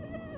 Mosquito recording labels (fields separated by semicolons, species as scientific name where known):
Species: Anopheles dirus; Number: one; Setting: insect culture